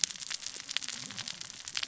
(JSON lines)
{"label": "biophony, cascading saw", "recorder": "SoundTrap 600 or HydroMoth"}